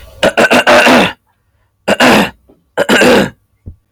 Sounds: Throat clearing